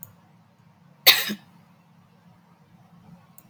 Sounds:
Sigh